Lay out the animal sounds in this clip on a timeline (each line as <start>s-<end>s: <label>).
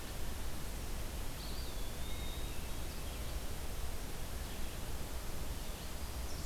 0.0s-6.5s: Red-eyed Vireo (Vireo olivaceus)
1.1s-2.9s: Eastern Wood-Pewee (Contopus virens)